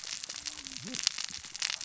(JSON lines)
{"label": "biophony, cascading saw", "recorder": "SoundTrap 600 or HydroMoth"}